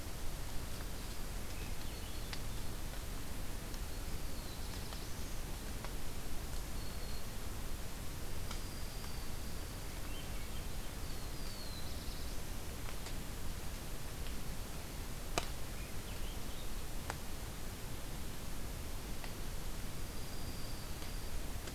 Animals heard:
Swainson's Thrush (Catharus ustulatus), Black-throated Blue Warbler (Setophaga caerulescens), Black-throated Green Warbler (Setophaga virens), Dark-eyed Junco (Junco hyemalis)

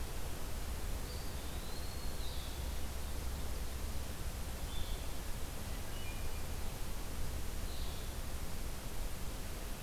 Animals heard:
Eastern Wood-Pewee (Contopus virens), Blue-headed Vireo (Vireo solitarius), Hermit Thrush (Catharus guttatus)

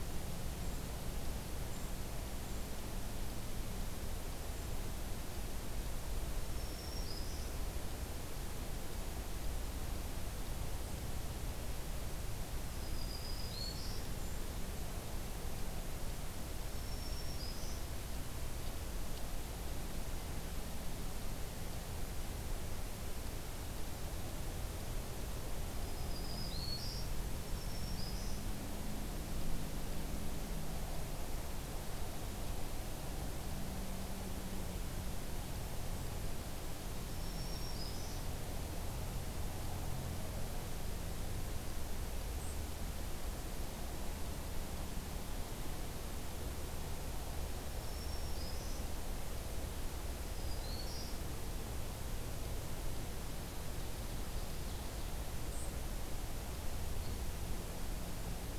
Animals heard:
Black-throated Green Warbler (Setophaga virens), Ovenbird (Seiurus aurocapilla)

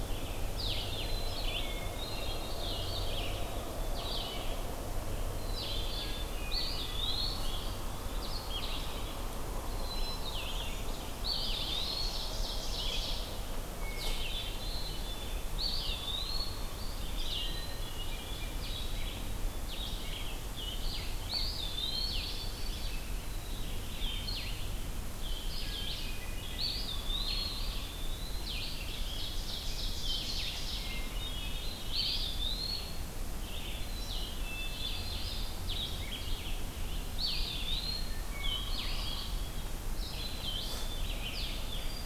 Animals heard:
Hermit Thrush (Catharus guttatus), Red-eyed Vireo (Vireo olivaceus), Ovenbird (Seiurus aurocapilla), Eastern Wood-Pewee (Contopus virens), Black-capped Chickadee (Poecile atricapillus), Blue-headed Vireo (Vireo solitarius)

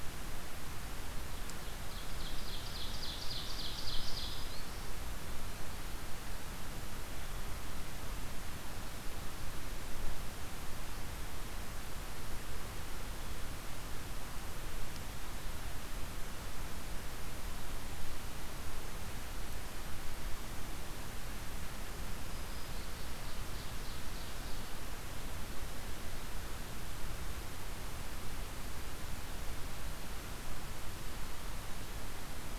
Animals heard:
Black-throated Green Warbler (Setophaga virens), Ovenbird (Seiurus aurocapilla)

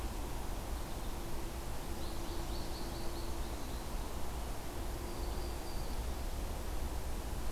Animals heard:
Black-throated Green Warbler (Setophaga virens), American Goldfinch (Spinus tristis)

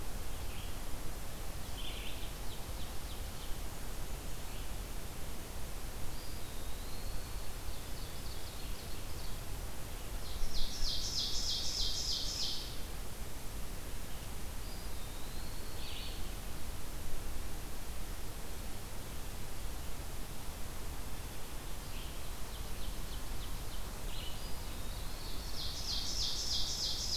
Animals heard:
Red-eyed Vireo (Vireo olivaceus), Ovenbird (Seiurus aurocapilla), Eastern Wood-Pewee (Contopus virens)

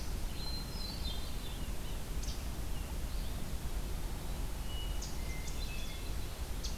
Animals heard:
Hermit Thrush (Catharus guttatus), Chestnut-sided Warbler (Setophaga pensylvanica), Red-eyed Vireo (Vireo olivaceus), Yellow-bellied Sapsucker (Sphyrapicus varius)

